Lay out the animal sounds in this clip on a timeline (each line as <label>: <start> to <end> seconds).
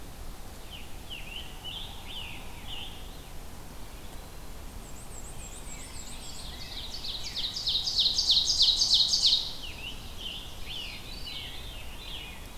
Scarlet Tanager (Piranga olivacea): 0.3 to 3.2 seconds
Black-and-white Warbler (Mniotilta varia): 4.5 to 6.7 seconds
Scarlet Tanager (Piranga olivacea): 5.2 to 7.6 seconds
Ovenbird (Seiurus aurocapilla): 5.3 to 9.8 seconds
Veery (Catharus fuscescens): 5.4 to 7.6 seconds
Scarlet Tanager (Piranga olivacea): 8.9 to 11.6 seconds
Veery (Catharus fuscescens): 10.3 to 12.6 seconds